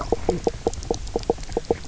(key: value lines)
label: biophony, knock croak
recorder: SoundTrap 300